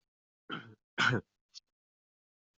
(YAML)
expert_labels:
- quality: no cough present
  dyspnea: false
  wheezing: false
  stridor: false
  choking: false
  congestion: false
  nothing: false
age: 18
gender: male
respiratory_condition: true
fever_muscle_pain: false
status: COVID-19